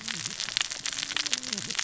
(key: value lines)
label: biophony, cascading saw
recorder: SoundTrap 600 or HydroMoth